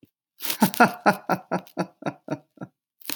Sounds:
Laughter